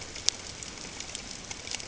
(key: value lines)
label: ambient
recorder: HydroMoth